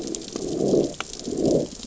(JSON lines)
{"label": "biophony, growl", "recorder": "SoundTrap 600 or HydroMoth"}